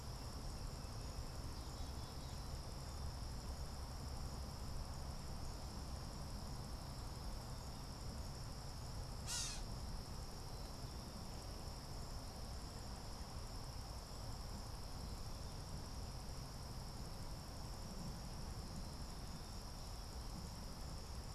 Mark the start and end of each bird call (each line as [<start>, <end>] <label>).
[9.20, 9.80] Gray Catbird (Dumetella carolinensis)